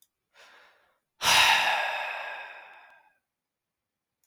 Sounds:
Sigh